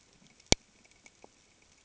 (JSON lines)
{"label": "ambient", "recorder": "HydroMoth"}